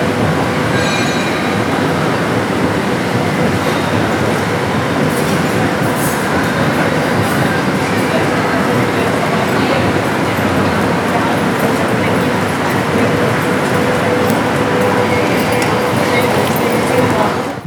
Are birds singing?
no